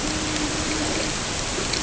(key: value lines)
label: ambient
recorder: HydroMoth